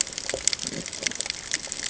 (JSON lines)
{"label": "ambient", "recorder": "HydroMoth"}